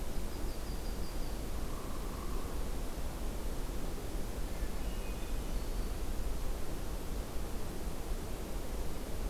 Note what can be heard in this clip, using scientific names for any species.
Setophaga coronata, Dryobates villosus, Catharus guttatus, Setophaga virens